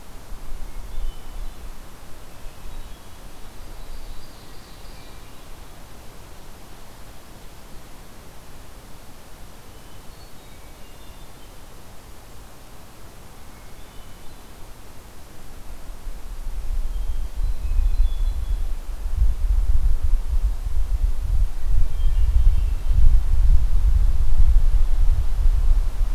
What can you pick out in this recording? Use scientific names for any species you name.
Catharus guttatus, Seiurus aurocapilla